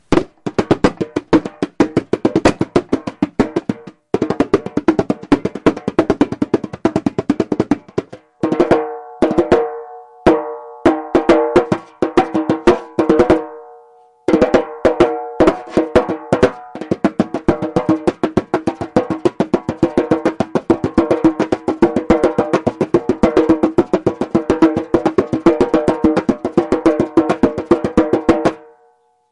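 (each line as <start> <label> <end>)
0.0 A loud, steady, and rhythmic drumming with fingers in a medium tempo pattern. 4.0
0.0 Clear echoes of drum beats. 29.3
4.1 A loud, steady, and rhythmic drumming sound played with fingers in a fast, steady tempo. 8.2
8.4 A loud, steady, and rhythmic drum beat played with fingers in a slow, steady tempo. 16.7
16.7 A drum is being hit with fingers in a steady, medium-fast rhythmic pattern. 28.6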